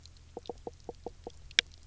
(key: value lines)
label: biophony, knock croak
recorder: SoundTrap 300